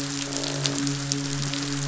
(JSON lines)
{"label": "biophony, midshipman", "recorder": "SoundTrap 500"}
{"label": "biophony, croak", "recorder": "SoundTrap 500"}